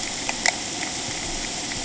{"label": "ambient", "recorder": "HydroMoth"}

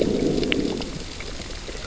{"label": "biophony, growl", "recorder": "SoundTrap 600 or HydroMoth"}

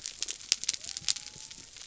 {"label": "biophony", "recorder": "SoundTrap 300"}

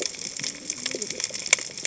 {"label": "biophony, cascading saw", "recorder": "HydroMoth"}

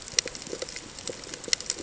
{"label": "ambient", "recorder": "HydroMoth"}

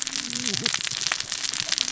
{"label": "biophony, cascading saw", "recorder": "SoundTrap 600 or HydroMoth"}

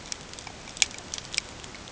{"label": "ambient", "recorder": "HydroMoth"}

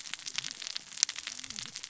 {"label": "biophony, cascading saw", "recorder": "SoundTrap 600 or HydroMoth"}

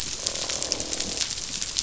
{"label": "biophony, croak", "recorder": "SoundTrap 500"}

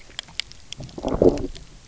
{"label": "biophony, low growl", "recorder": "SoundTrap 300"}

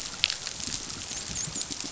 {"label": "biophony, dolphin", "recorder": "SoundTrap 500"}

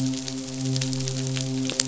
{"label": "biophony, midshipman", "recorder": "SoundTrap 500"}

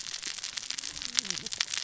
{"label": "biophony, cascading saw", "recorder": "SoundTrap 600 or HydroMoth"}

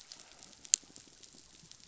{"label": "biophony", "recorder": "SoundTrap 500"}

